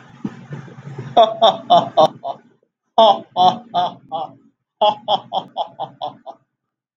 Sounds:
Laughter